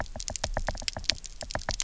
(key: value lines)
label: biophony, knock
recorder: SoundTrap 300